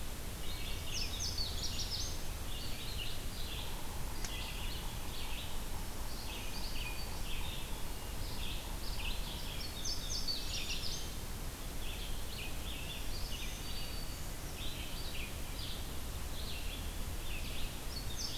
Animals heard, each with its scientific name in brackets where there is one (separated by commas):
Red-eyed Vireo (Vireo olivaceus), Black-throated Green Warbler (Setophaga virens), Yellow-bellied Sapsucker (Sphyrapicus varius), Indigo Bunting (Passerina cyanea)